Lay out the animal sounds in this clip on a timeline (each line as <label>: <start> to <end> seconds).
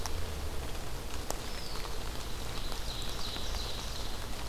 Eastern Wood-Pewee (Contopus virens): 1.1 to 2.1 seconds
Ovenbird (Seiurus aurocapilla): 1.7 to 4.5 seconds